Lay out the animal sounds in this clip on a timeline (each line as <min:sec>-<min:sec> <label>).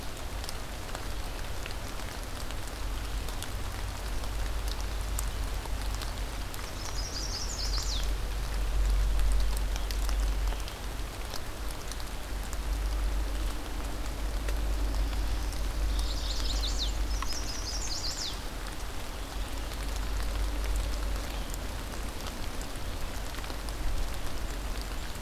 0:06.7-0:08.1 Chestnut-sided Warbler (Setophaga pensylvanica)
0:14.2-0:15.9 Black-throated Blue Warbler (Setophaga caerulescens)
0:15.8-0:18.4 Chestnut-sided Warbler (Setophaga pensylvanica)